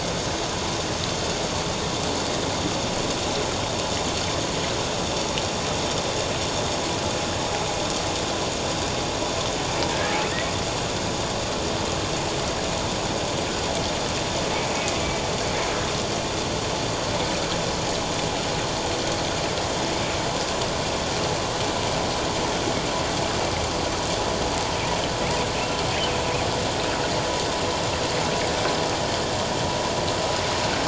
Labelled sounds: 9.9	10.2	humpback whale, 1.6 to 1.8 kHz

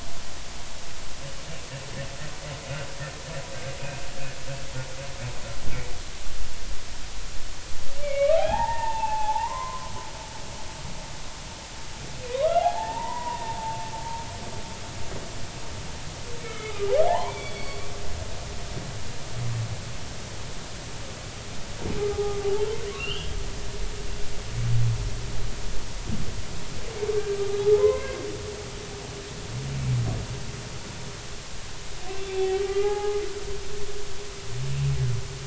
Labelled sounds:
3.8	4.1	humpback whale, 2.4 to 2.7 kHz
8.0	9.9	humpback whale, 0.80 to 3.4 kHz
12.3	13.6	humpback whale, 0.80 to 2.0 kHz
16.4	17.8	humpback whale, 0.80 to 4.6 kHz
22.0	22.4	humpback whale, 0.80 to 1.3 kHz
22.9	23.4	humpback whale, 2.5 to 3.4 kHz
27.8	28.2	humpback whale, 0.96 to 2.2 kHz
32.3	33.2	humpback whale, 0.80 to 2.7 kHz

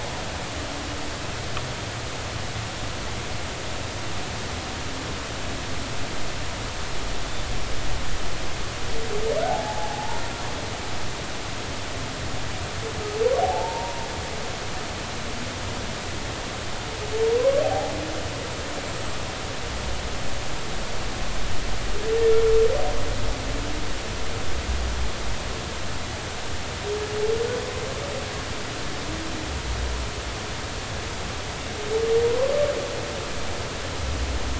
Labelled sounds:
9.5	10.2	humpback whale, 0.80 to 0.99 kHz
13.4	14.1	humpback whale, 0.80 to 1.0 kHz
17.4	17.9	humpback whale, 0.80 to 1.2 kHz

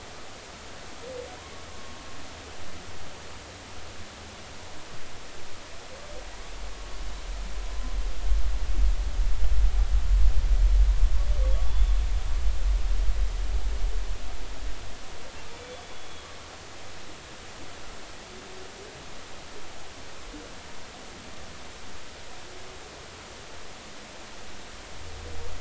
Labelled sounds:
1.7	1.9	humpback whale, 0.99 to 1.1 kHz
11.7	12.0	humpback whale, 3.4 to 3.6 kHz
15.6	16.3	humpback whale, 3.3 to 3.5 kHz

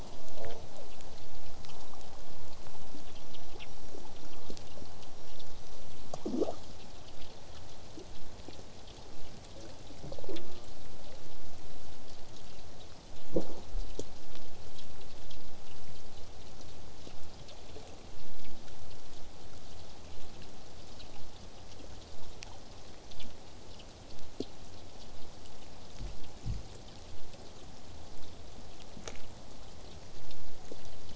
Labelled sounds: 0.0	6.3	killer whale, southern resident, J pod, whistle, 5.4 to 8.0 kHz
10.2	10.7	killer whale, southern resident, J pod, call S04, 0.12 to 1.4 kHz
20.1	25.1	vessel noise, 0 to 8.0 kHz
27.0	29.4	killer whale, southern resident, J pod, 7.8 to 8.0 kHz

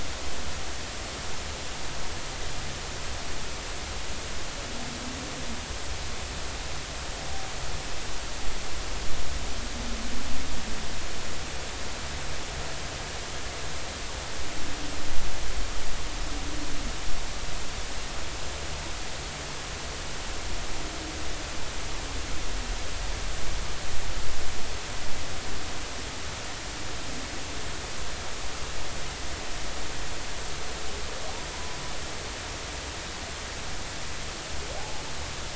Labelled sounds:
31.5	31.8	humpback whale, 0.90 to 1.0 kHz
34.8	35.0	humpback whale, 0.80 to 0.90 kHz

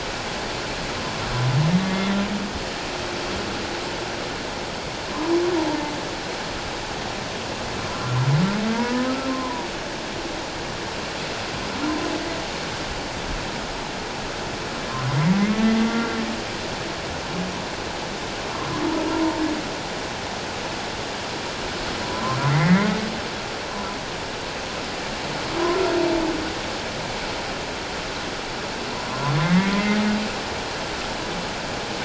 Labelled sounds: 1.8	2.2	humpback whale, 1.9 to 3.6 kHz
7.9	9.7	humpback whale, 0.91 to 1.4 kHz
22.1	23.0	humpback whale, 0.97 to 2.2 kHz
23.7	24.0	humpback whale, 0.94 to 1.1 kHz
29.4	30.0	humpback whale, 1.9 to 2.2 kHz

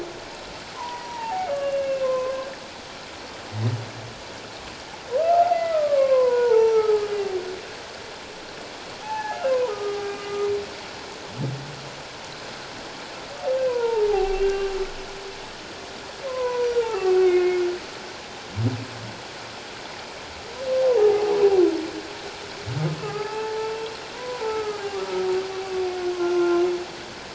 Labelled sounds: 0.7	2.3	humpback whale, 0.78 to 2.8 kHz
5.2	7.3	humpback whale, 0.78 to 5.9 kHz
9.0	10.2	humpback whale, 0.78 to 1.8 kHz
13.7	14.5	humpback whale, 0.78 to 2.8 kHz
16.3	17.6	humpback whale, 0.78 to 2.8 kHz
20.8	21.4	humpback whale, 0.78 to 1.1 kHz
23.0	23.7	humpback whale, 0.78 to 1.8 kHz
24.1	25.0	humpback whale, 0.84 to 1.7 kHz
26.2	26.6	humpback whale, 1.0 to 1.4 kHz

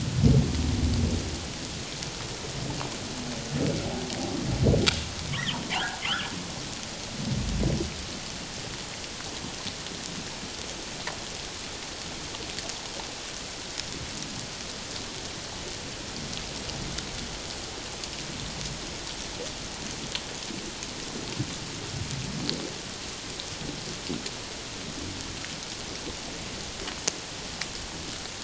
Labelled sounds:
6.0	6.3	humpback whale, 1.0 to 1.8 kHz

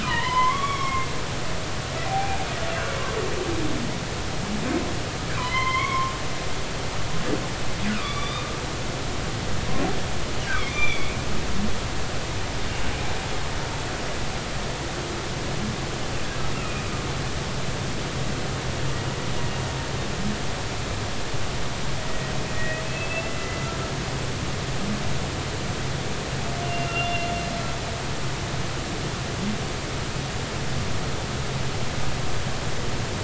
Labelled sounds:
0.0	1.1	humpback whale, 0.90 to 3.5 kHz
2.0	2.5	humpback whale, 0.80 to 0.96 kHz
5.4	6.1	humpback whale, 0.93 to 4.3 kHz
7.9	8.5	humpback whale, 1.1 to 3.8 kHz
10.7	11.1	humpback whale, 2.1 to 3.6 kHz
16.5	16.8	humpback whale, 2.3 to 2.8 kHz
22.5	23.7	humpback whale, 1.8 to 2.8 kHz
26.6	27.3	humpback whale, 2.7 to 2.9 kHz

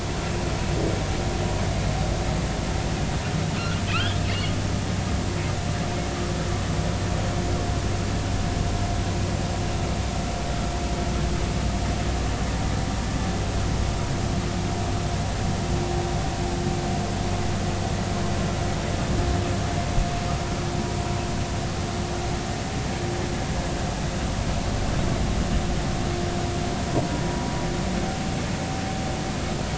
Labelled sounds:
3.9	4.2	humpback whale, 1.2 to 1.7 kHz

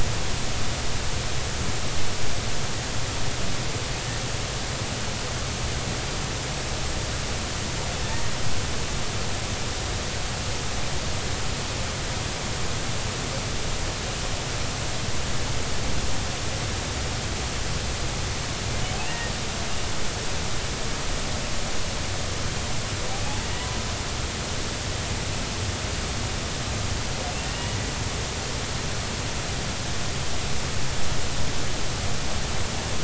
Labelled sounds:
19.0	19.3	humpback whale, 1.7 to 2.8 kHz
23.4	23.7	humpback whale, 1.9 to 2.0 kHz
27.4	27.8	humpback whale, 1.8 to 3.0 kHz

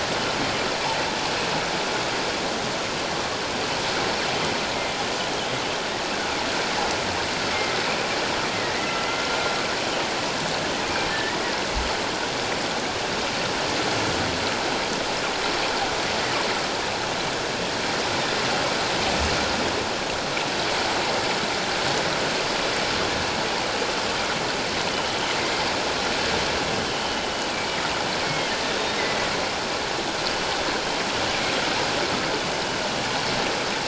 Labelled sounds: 7.5	7.8	killer whale, northern resident, G clan, 2.0 to 2.2 kHz
8.7	9.3	killer whale, northern resident, G clan, 1.9 to 2.2 kHz
11.1	11.4	killer whale, northern resident, G clan, 1.7 to 2.0 kHz
26.9	27.2	killer whale, northern resident, G clan, 2.9 to 3.0 kHz
28.2	29.0	killer whale, northern resident, G clan, 2.0 to 3.9 kHz

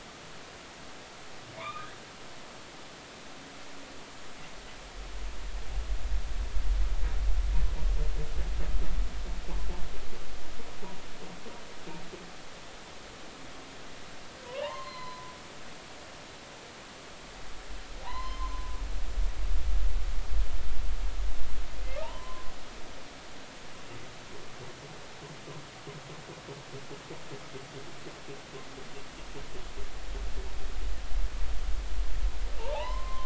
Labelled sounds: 1.6	1.9	humpback whale, 0.90 to 2.5 kHz
14.5	15.3	humpback whale, 0.80 to 4.3 kHz
18.0	18.7	humpback whale, 0.80 to 4.2 kHz
22.0	22.5	humpback whale, 0.80 to 1.1 kHz
32.6	33.2	humpback whale, 0.80 to 3.2 kHz

